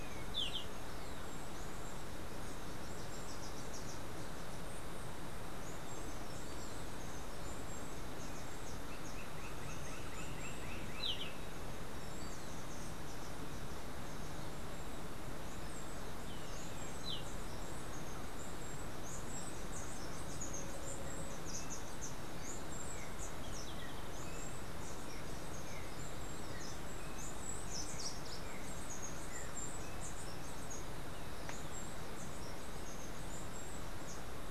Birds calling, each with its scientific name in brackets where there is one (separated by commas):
Roadside Hawk (Rupornis magnirostris), Golden-faced Tyrannulet (Zimmerius chrysops), Slate-throated Redstart (Myioborus miniatus), Steely-vented Hummingbird (Saucerottia saucerottei)